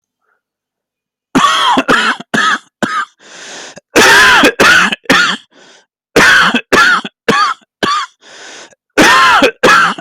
{"expert_labels": [{"quality": "good", "cough_type": "dry", "dyspnea": false, "wheezing": false, "stridor": false, "choking": false, "congestion": false, "nothing": true, "diagnosis": "COVID-19", "severity": "severe"}], "age": 42, "gender": "male", "respiratory_condition": true, "fever_muscle_pain": false, "status": "symptomatic"}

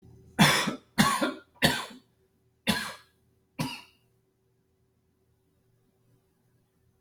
{"expert_labels": [{"quality": "good", "cough_type": "dry", "dyspnea": false, "wheezing": false, "stridor": false, "choking": false, "congestion": false, "nothing": true, "diagnosis": "obstructive lung disease", "severity": "unknown"}], "age": 33, "gender": "female", "respiratory_condition": true, "fever_muscle_pain": false, "status": "symptomatic"}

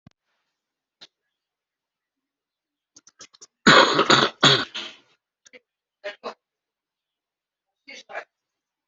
{"expert_labels": [{"quality": "good", "cough_type": "wet", "dyspnea": false, "wheezing": false, "stridor": false, "choking": false, "congestion": false, "nothing": true, "diagnosis": "obstructive lung disease", "severity": "mild"}], "age": 46, "gender": "male", "respiratory_condition": true, "fever_muscle_pain": true, "status": "healthy"}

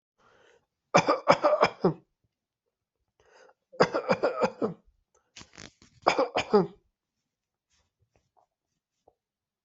{"expert_labels": [{"quality": "good", "cough_type": "dry", "dyspnea": false, "wheezing": false, "stridor": false, "choking": false, "congestion": false, "nothing": true, "diagnosis": "healthy cough", "severity": "pseudocough/healthy cough"}], "age": 28, "gender": "male", "respiratory_condition": false, "fever_muscle_pain": false, "status": "healthy"}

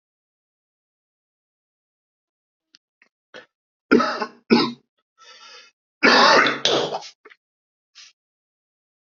{"expert_labels": [{"quality": "ok", "cough_type": "wet", "dyspnea": false, "wheezing": false, "stridor": false, "choking": false, "congestion": false, "nothing": true, "diagnosis": "COVID-19", "severity": "mild"}], "age": 35, "gender": "male", "respiratory_condition": true, "fever_muscle_pain": false, "status": "symptomatic"}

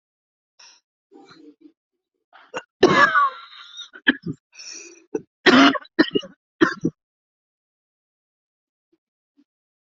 {"expert_labels": [{"quality": "ok", "cough_type": "dry", "dyspnea": true, "wheezing": true, "stridor": false, "choking": false, "congestion": false, "nothing": false, "diagnosis": "obstructive lung disease", "severity": "severe"}, {"quality": "ok", "cough_type": "dry", "dyspnea": false, "wheezing": false, "stridor": false, "choking": false, "congestion": false, "nothing": true, "diagnosis": "obstructive lung disease", "severity": "mild"}, {"quality": "good", "cough_type": "wet", "dyspnea": false, "wheezing": false, "stridor": false, "choking": false, "congestion": false, "nothing": true, "diagnosis": "upper respiratory tract infection", "severity": "severe"}, {"quality": "good", "cough_type": "dry", "dyspnea": false, "wheezing": true, "stridor": false, "choking": false, "congestion": false, "nothing": false, "diagnosis": "obstructive lung disease", "severity": "mild"}], "age": 29, "gender": "male", "respiratory_condition": true, "fever_muscle_pain": true, "status": "symptomatic"}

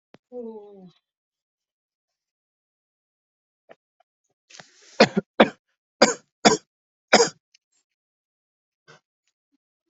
{"expert_labels": [{"quality": "good", "cough_type": "dry", "dyspnea": false, "wheezing": false, "stridor": false, "choking": false, "congestion": false, "nothing": true, "diagnosis": "COVID-19", "severity": "mild"}], "age": 32, "gender": "male", "respiratory_condition": false, "fever_muscle_pain": false, "status": "healthy"}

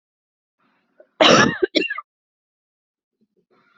{"expert_labels": [{"quality": "good", "cough_type": "dry", "dyspnea": false, "wheezing": true, "stridor": false, "choking": false, "congestion": false, "nothing": false, "diagnosis": "obstructive lung disease", "severity": "mild"}], "age": 32, "gender": "female", "respiratory_condition": false, "fever_muscle_pain": false, "status": "symptomatic"}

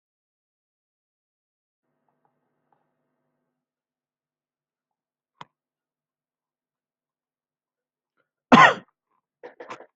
{"expert_labels": [{"quality": "ok", "cough_type": "dry", "dyspnea": false, "wheezing": false, "stridor": false, "choking": false, "congestion": false, "nothing": true, "diagnosis": "healthy cough", "severity": "pseudocough/healthy cough"}], "age": 24, "gender": "male", "respiratory_condition": false, "fever_muscle_pain": false, "status": "healthy"}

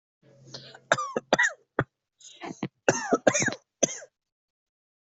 {"expert_labels": [{"quality": "good", "cough_type": "wet", "dyspnea": false, "wheezing": false, "stridor": false, "choking": false, "congestion": false, "nothing": true, "diagnosis": "obstructive lung disease", "severity": "mild"}], "gender": "male", "respiratory_condition": false, "fever_muscle_pain": false, "status": "symptomatic"}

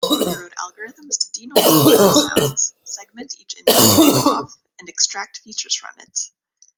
{"expert_labels": [{"quality": "poor", "cough_type": "wet", "dyspnea": true, "wheezing": true, "stridor": false, "choking": false, "congestion": false, "nothing": false, "diagnosis": "obstructive lung disease", "severity": "mild"}]}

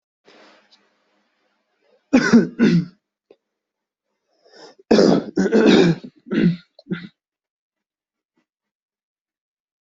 {"expert_labels": [{"quality": "good", "cough_type": "wet", "dyspnea": true, "wheezing": false, "stridor": false, "choking": false, "congestion": false, "nothing": false, "diagnosis": "obstructive lung disease", "severity": "mild"}], "age": 23, "gender": "male", "respiratory_condition": false, "fever_muscle_pain": false, "status": "symptomatic"}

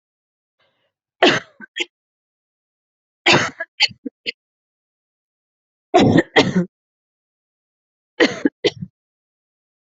{"expert_labels": [{"quality": "ok", "cough_type": "dry", "dyspnea": false, "wheezing": false, "stridor": false, "choking": false, "congestion": false, "nothing": true, "diagnosis": "upper respiratory tract infection", "severity": "severe"}], "age": 37, "gender": "female", "respiratory_condition": false, "fever_muscle_pain": true, "status": "symptomatic"}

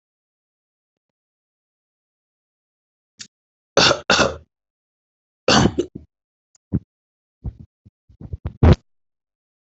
{"expert_labels": [{"quality": "good", "cough_type": "wet", "dyspnea": false, "wheezing": false, "stridor": false, "choking": false, "congestion": false, "nothing": true, "diagnosis": "upper respiratory tract infection", "severity": "mild"}], "age": 35, "gender": "male", "respiratory_condition": false, "fever_muscle_pain": false, "status": "COVID-19"}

